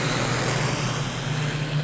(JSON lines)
{"label": "anthrophony, boat engine", "recorder": "SoundTrap 500"}